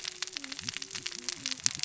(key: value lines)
label: biophony, cascading saw
recorder: SoundTrap 600 or HydroMoth